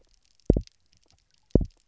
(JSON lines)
{"label": "biophony, double pulse", "recorder": "SoundTrap 300"}